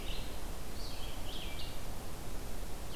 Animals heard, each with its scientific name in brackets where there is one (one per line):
Red-eyed Vireo (Vireo olivaceus)